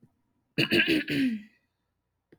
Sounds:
Throat clearing